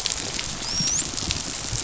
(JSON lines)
{"label": "biophony, dolphin", "recorder": "SoundTrap 500"}